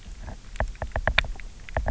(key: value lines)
label: biophony, knock
recorder: SoundTrap 300